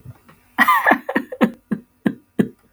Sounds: Laughter